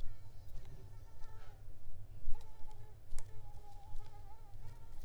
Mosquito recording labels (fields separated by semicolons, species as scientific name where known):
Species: Mansonia africanus; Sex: female; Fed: unfed; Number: one; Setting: cup